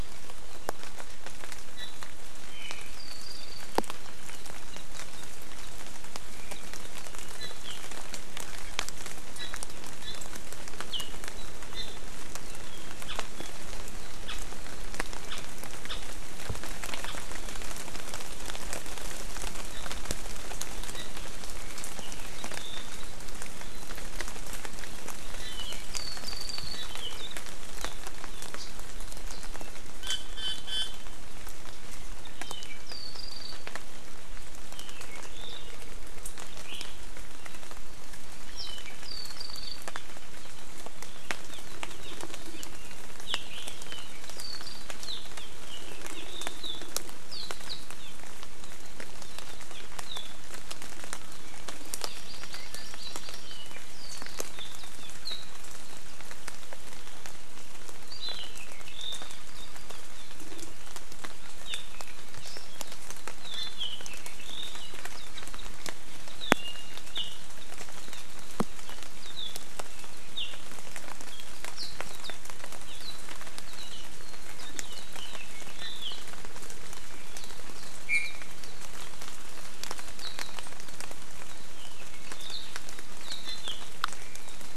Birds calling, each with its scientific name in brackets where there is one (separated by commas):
Apapane (Himatione sanguinea), Iiwi (Drepanis coccinea), Omao (Myadestes obscurus), Hawaii Amakihi (Chlorodrepanis virens)